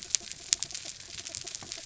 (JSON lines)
{"label": "anthrophony, mechanical", "recorder": "SoundTrap 300"}